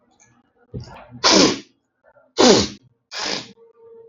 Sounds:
Sniff